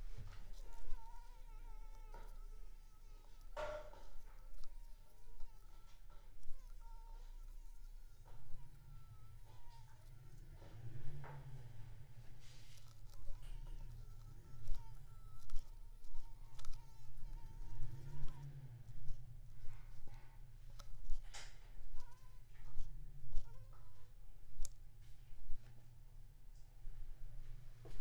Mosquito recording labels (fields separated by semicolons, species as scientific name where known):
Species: Anopheles squamosus; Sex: female; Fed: unfed; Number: one; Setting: cup